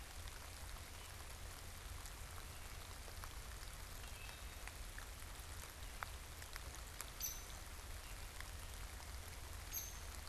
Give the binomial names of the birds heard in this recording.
Hylocichla mustelina, Dryobates villosus